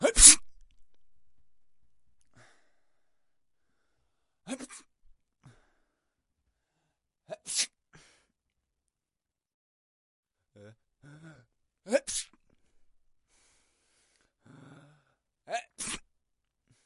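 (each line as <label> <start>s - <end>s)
A man sneezes indoors. 0.0s - 0.9s
A man is trying to sneeze. 4.0s - 5.0s
Man breathing heavily. 5.4s - 6.8s
A man sneezes indoors. 6.8s - 8.4s
A man sneezes indoors. 11.0s - 12.7s
A man is breathing loudly indoors. 12.9s - 14.9s
A man sneezes indoors. 15.1s - 16.2s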